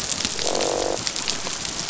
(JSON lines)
{"label": "biophony, croak", "recorder": "SoundTrap 500"}